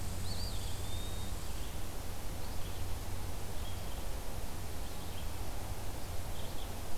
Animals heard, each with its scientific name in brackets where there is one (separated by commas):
Eastern Wood-Pewee (Contopus virens), Red-eyed Vireo (Vireo olivaceus), Red Squirrel (Tamiasciurus hudsonicus)